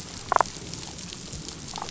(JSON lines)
{"label": "biophony, damselfish", "recorder": "SoundTrap 500"}